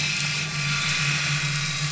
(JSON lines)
{"label": "anthrophony, boat engine", "recorder": "SoundTrap 500"}